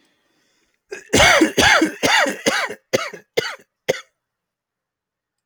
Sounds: Cough